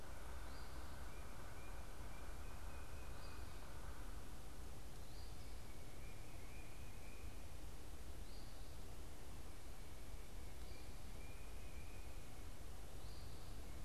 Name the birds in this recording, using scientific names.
Sphyrapicus varius, Baeolophus bicolor